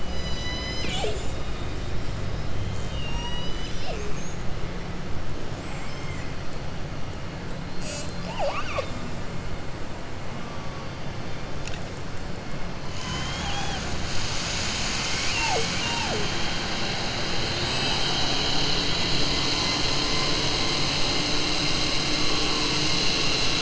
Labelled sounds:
5.6	6.3	killer whale, southern resident, 1.1 to 3.2 kHz

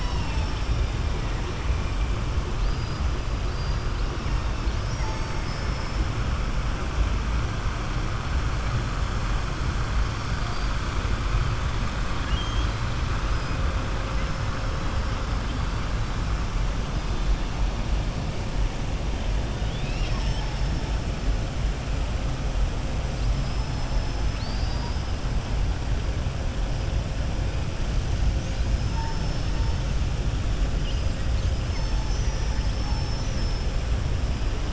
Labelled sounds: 4.5	6.0	killer whale, southern resident, 4.2 to 6.5 kHz
10.1	10.7	killer whale, southern resident, 4.1 to 5.6 kHz
12.1	12.8	killer whale, southern resident, 1.9 to 4.6 kHz
24.2	25.0	killer whale, southern resident, 3.8 to 5.3 kHz

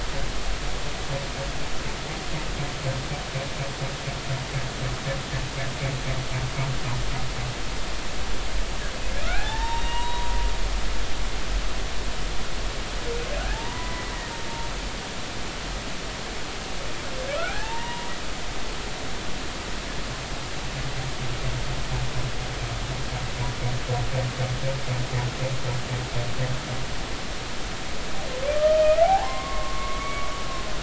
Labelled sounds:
9.2	10.3	humpback whale, 0.80 to 7.6 kHz
13.5	14.1	humpback whale, 0.83 to 2.0 kHz
17.4	18.1	humpback whale, 0.80 to 2.9 kHz
28.6	30.3	humpback whale, 0.80 to 3.2 kHz

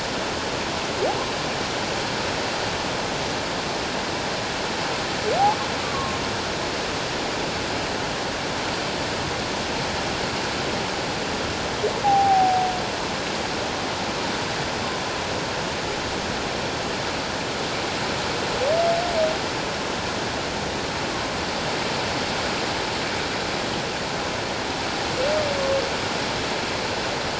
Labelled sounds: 5.8	6.2	humpback whale, 1.0 to 1.2 kHz
12.0	12.7	humpback whale, 0.78 to 0.88 kHz

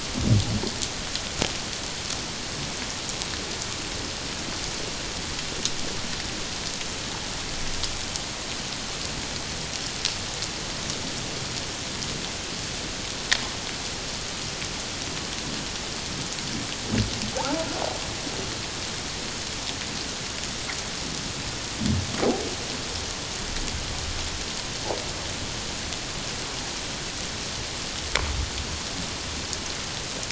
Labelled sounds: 17.3	17.7	humpback whale, 0.78 to 1.0 kHz

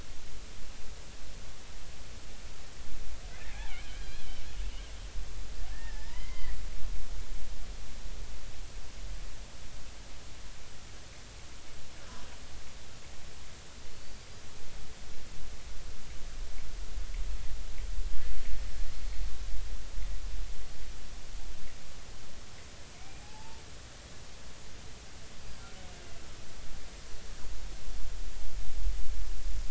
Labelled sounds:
4.0	4.3	killer whale, Bigg's (transient), 3.1 to 4.3 kHz
5.7	6.6	killer whale, Bigg's (transient), 0.83 to 4.8 kHz
13.9	14.3	killer whale, Bigg's (transient), 4.3 to 4.8 kHz
23.0	23.6	killer whale, Bigg's (transient), 0.80 to 4.9 kHz
25.6	25.9	killer whale, Bigg's (transient), 1.3 to 1.6 kHz

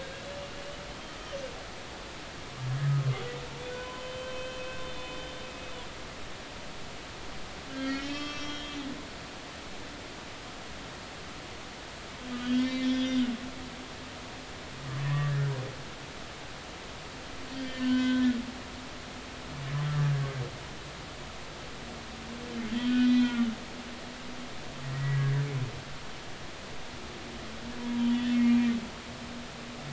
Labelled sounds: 2.8	5.3	humpback whale, 0.93 to 3.6 kHz
7.7	8.8	humpback whale, 1.1 to 5.6 kHz
12.3	13.3	humpback whale, 2.0 to 3.9 kHz
15.0	15.3	humpback whale, 0.96 to 1.9 kHz
17.6	18.3	humpback whale, 0.99 to 3.4 kHz
22.7	23.5	humpback whale, 1.3 to 4.0 kHz
24.8	25.2	humpback whale, 1.9 to 2.0 kHz
27.8	28.7	humpback whale, 0.93 to 3.5 kHz

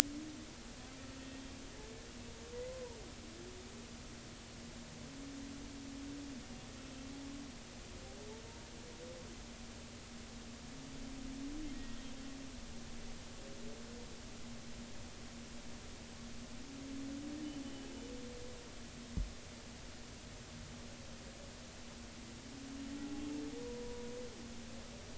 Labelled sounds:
2.7	3.0	humpback whale, 0.86 to 1.1 kHz
23.6	24.1	humpback whale, 0.93 to 1.0 kHz

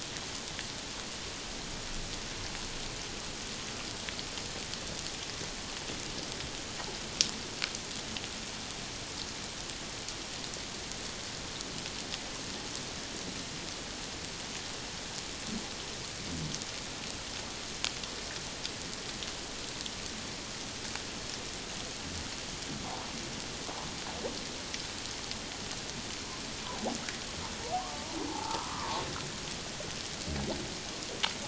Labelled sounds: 27.9	29.0	humpback whale, 0.78 to 1.4 kHz

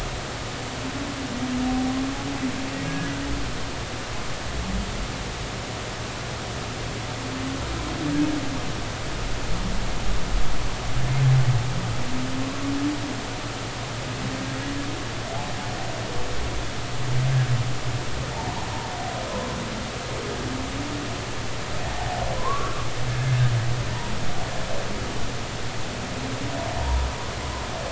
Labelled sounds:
2.8	3.1	humpback whale, 1.6 to 1.7 kHz
21.9	22.7	humpback whale, 0.80 to 1.2 kHz
26.8	27.1	humpback whale, 0.86 to 1.1 kHz

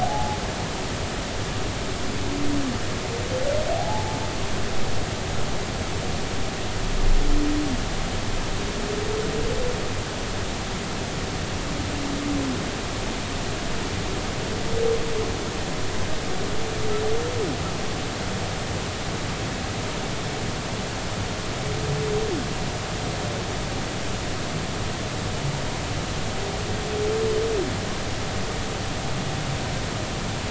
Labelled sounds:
0.0	0.4	humpback whale, 0.80 to 0.90 kHz
3.7	4.2	humpback whale, 0.80 to 0.93 kHz

